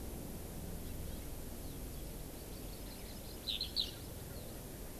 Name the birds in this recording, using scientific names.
Chlorodrepanis virens, Alauda arvensis